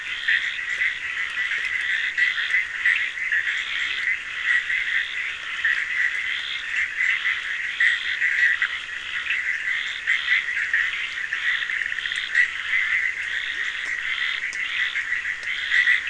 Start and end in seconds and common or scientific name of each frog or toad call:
0.0	4.5	Cochran's lime tree frog
0.0	16.0	Bischoff's tree frog
0.0	16.0	Scinax perereca
13.4	13.7	Leptodactylus latrans